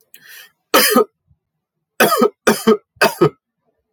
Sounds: Cough